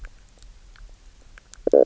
{"label": "biophony, knock croak", "recorder": "SoundTrap 300"}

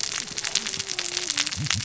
{"label": "biophony, cascading saw", "recorder": "SoundTrap 600 or HydroMoth"}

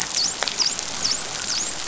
{"label": "biophony, dolphin", "recorder": "SoundTrap 500"}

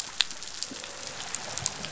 {"label": "biophony, croak", "recorder": "SoundTrap 500"}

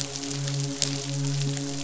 {"label": "biophony, midshipman", "recorder": "SoundTrap 500"}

